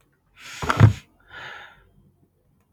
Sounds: Sneeze